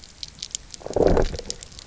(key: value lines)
label: biophony, low growl
recorder: SoundTrap 300